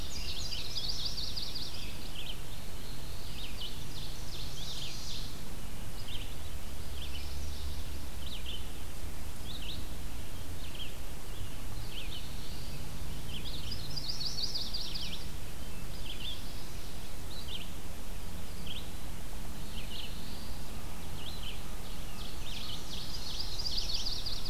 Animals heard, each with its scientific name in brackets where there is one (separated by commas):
Yellow-rumped Warbler (Setophaga coronata), Ovenbird (Seiurus aurocapilla), Black-throated Blue Warbler (Setophaga caerulescens), Red-eyed Vireo (Vireo olivaceus), Indigo Bunting (Passerina cyanea)